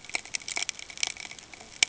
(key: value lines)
label: ambient
recorder: HydroMoth